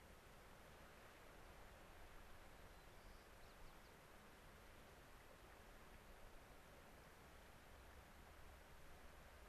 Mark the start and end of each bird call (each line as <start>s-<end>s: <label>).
2.5s-4.0s: White-crowned Sparrow (Zonotrichia leucophrys)